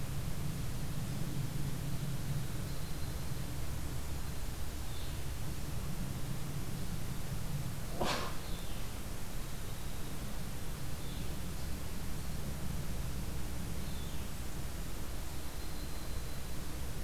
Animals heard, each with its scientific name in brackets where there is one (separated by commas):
Yellow-rumped Warbler (Setophaga coronata), Blackburnian Warbler (Setophaga fusca), Blue-headed Vireo (Vireo solitarius)